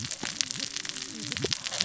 {"label": "biophony, cascading saw", "recorder": "SoundTrap 600 or HydroMoth"}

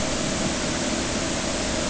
{"label": "anthrophony, boat engine", "recorder": "HydroMoth"}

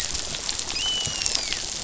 {"label": "biophony, dolphin", "recorder": "SoundTrap 500"}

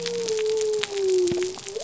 {"label": "biophony", "recorder": "SoundTrap 300"}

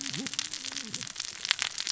{"label": "biophony, cascading saw", "recorder": "SoundTrap 600 or HydroMoth"}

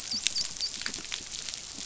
{"label": "biophony, dolphin", "recorder": "SoundTrap 500"}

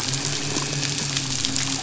{"label": "biophony, midshipman", "recorder": "SoundTrap 500"}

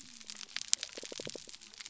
{"label": "biophony", "recorder": "SoundTrap 300"}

